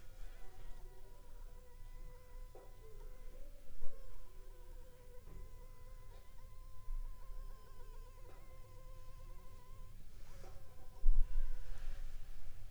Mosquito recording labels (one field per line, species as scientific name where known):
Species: Anopheles funestus s.l.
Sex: female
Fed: unfed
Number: one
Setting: cup